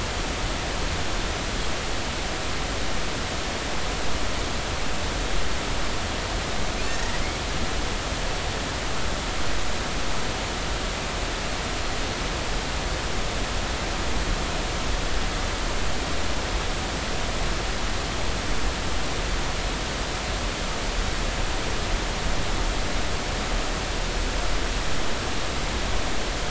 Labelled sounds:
6.9	7.2	Pacific white-sided dolphin, 1.8 to 2.0 kHz

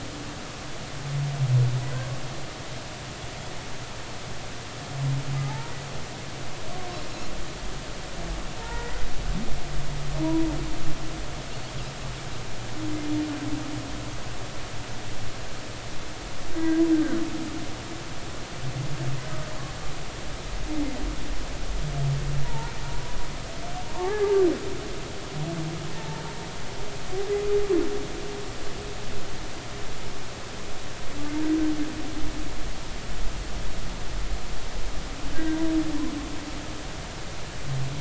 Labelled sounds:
5.4	5.7	humpback whale, 0.80 to 0.99 kHz
8.6	9.1	humpback whale, 0.86 to 2.0 kHz
10.2	10.5	humpback whale, 0.90 to 1.0 kHz
16.6	16.8	humpback whale, 1.5 to 1.7 kHz
22.4	23.2	humpback whale, 0.83 to 1.0 kHz
23.9	24.4	humpback whale, 0.80 to 2.1 kHz
25.9	26.2	humpback whale, 0.83 to 0.93 kHz
35.3	35.6	humpback whale, 1.5 to 1.7 kHz

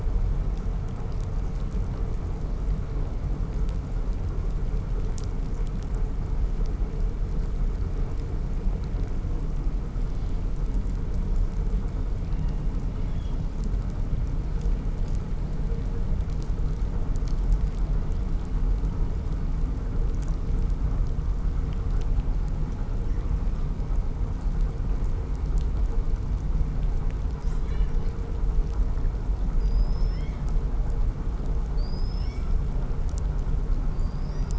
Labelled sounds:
27.1	28.4	killer whale, southern resident, 1.4 to 8.0 kHz
29.6	30.6	killer whale, southern resident, 1.8 to 8.0 kHz
31.7	32.7	killer whale, southern resident, 1.6 to 8.0 kHz
33.8	34.5	killer whale, southern resident, 3.3 to 8.0 kHz

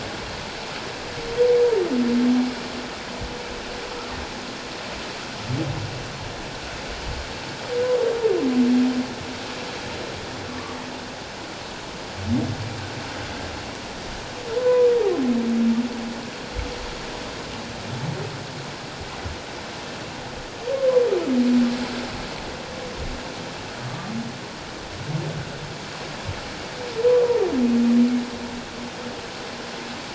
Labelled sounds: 10.5	10.8	humpback whale, 1.0 to 1.2 kHz
14.5	14.9	humpback whale, 0.94 to 1.1 kHz
23.9	24.1	humpback whale, 1.1 to 1.2 kHz

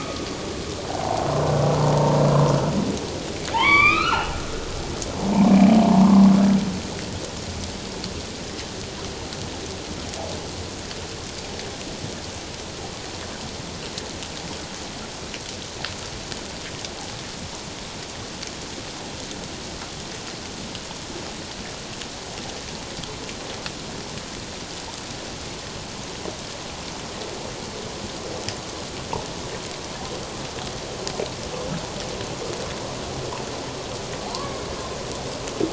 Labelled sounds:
0.9	1.2	humpback whale, 0.78 to 1.1 kHz
1.8	2.2	humpback whale, 0.88 to 1.0 kHz
3.5	4.4	humpback whale, 0.78 to 5.0 kHz
6.0	6.3	humpback whale, 0.97 to 1.2 kHz
34.2	34.6	humpback whale, 0.78 to 1.2 kHz

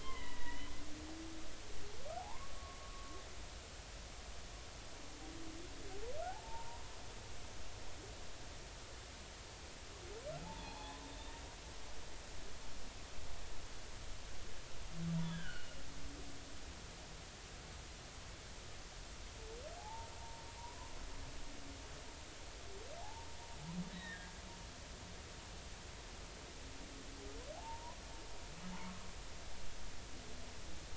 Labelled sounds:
0.0	0.7	humpback whale, 0.90 to 3.2 kHz
2.2	3.2	humpback whale, 0.80 to 1.2 kHz
6.3	6.9	humpback whale, 0.80 to 1.1 kHz
10.4	11.1	humpback whale, 0.80 to 3.6 kHz
15.2	15.8	humpback whale, 1.4 to 3.6 kHz
19.8	20.4	humpback whale, 0.80 to 0.99 kHz
23.0	23.3	humpback whale, 0.80 to 0.96 kHz
23.9	24.3	humpback whale, 1.6 to 3.9 kHz
27.5	28.0	humpback whale, 0.80 to 1.1 kHz

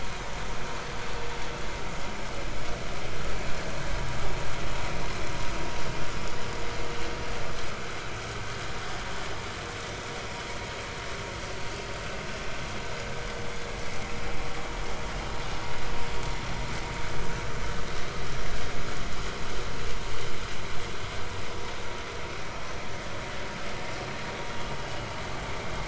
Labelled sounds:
22.4	22.7	vessel noise, 5.5 to 5.7 kHz

